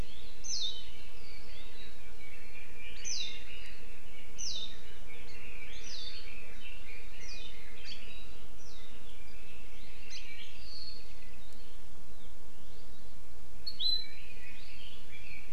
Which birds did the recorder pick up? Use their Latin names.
Zosterops japonicus, Leiothrix lutea